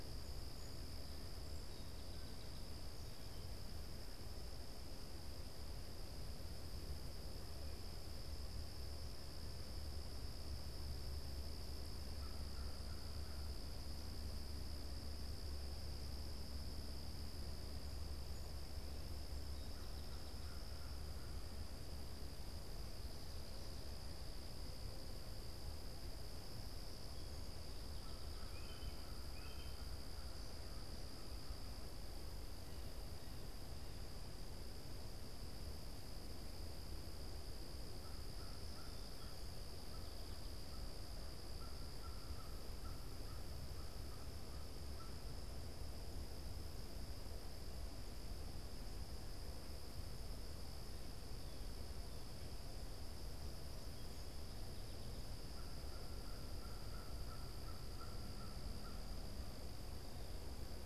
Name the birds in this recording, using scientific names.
Melospiza melodia, Corvus brachyrhynchos, unidentified bird